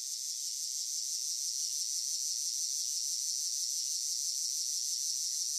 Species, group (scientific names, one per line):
Neotibicen linnei
Cicadidae